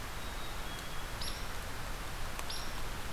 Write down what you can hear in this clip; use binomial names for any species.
Dryobates villosus, Poecile atricapillus